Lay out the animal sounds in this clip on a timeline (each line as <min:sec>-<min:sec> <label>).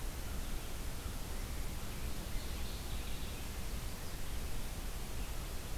0:02.1-0:03.5 Mourning Warbler (Geothlypis philadelphia)